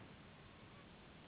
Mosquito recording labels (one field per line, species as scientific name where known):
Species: Anopheles gambiae s.s.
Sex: female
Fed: unfed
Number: one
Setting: insect culture